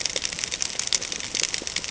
{"label": "ambient", "recorder": "HydroMoth"}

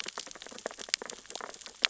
{"label": "biophony, sea urchins (Echinidae)", "recorder": "SoundTrap 600 or HydroMoth"}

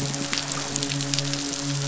{"label": "biophony, midshipman", "recorder": "SoundTrap 500"}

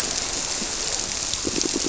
{"label": "biophony, squirrelfish (Holocentrus)", "recorder": "SoundTrap 300"}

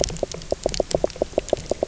{"label": "biophony, knock croak", "recorder": "SoundTrap 300"}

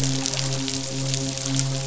{"label": "biophony, midshipman", "recorder": "SoundTrap 500"}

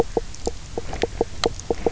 {"label": "biophony, knock croak", "recorder": "SoundTrap 300"}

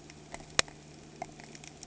{"label": "anthrophony, boat engine", "recorder": "HydroMoth"}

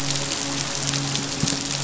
{"label": "biophony, midshipman", "recorder": "SoundTrap 500"}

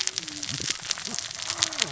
{"label": "biophony, cascading saw", "recorder": "SoundTrap 600 or HydroMoth"}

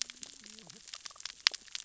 {"label": "biophony, cascading saw", "recorder": "SoundTrap 600 or HydroMoth"}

